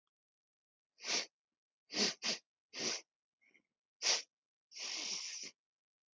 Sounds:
Sniff